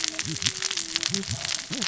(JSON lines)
{"label": "biophony, cascading saw", "recorder": "SoundTrap 600 or HydroMoth"}